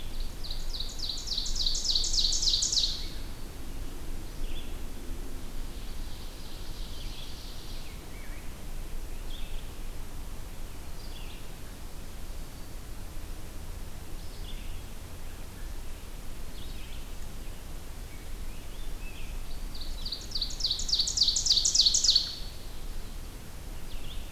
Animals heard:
Ovenbird (Seiurus aurocapilla)
American Robin (Turdus migratorius)
Red-eyed Vireo (Vireo olivaceus)

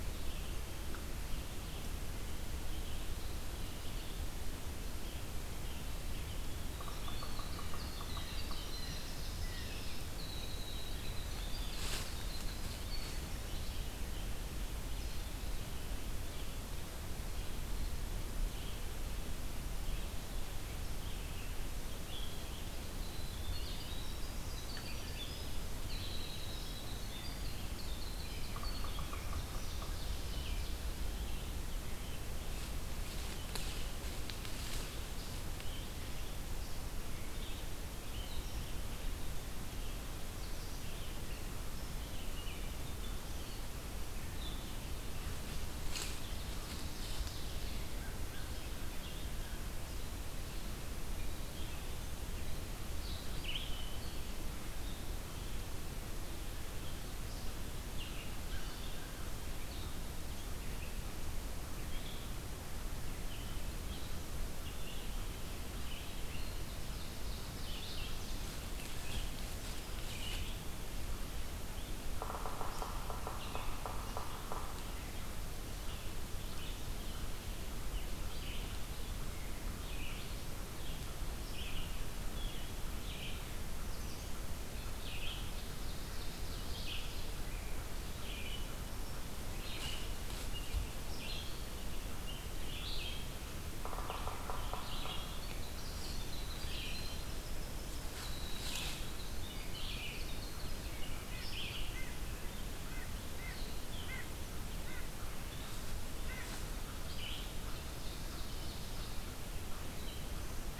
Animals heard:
Winter Wren (Troglodytes hiemalis)
American Crow (Corvus brachyrhynchos)
White-breasted Nuthatch (Sitta carolinensis)
Red-eyed Vireo (Vireo olivaceus)
Yellow-bellied Sapsucker (Sphyrapicus varius)
Blue-headed Vireo (Vireo solitarius)
Ovenbird (Seiurus aurocapilla)

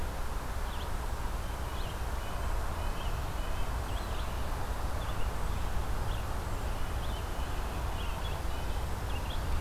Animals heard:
Red-eyed Vireo (Vireo olivaceus)
Red-breasted Nuthatch (Sitta canadensis)

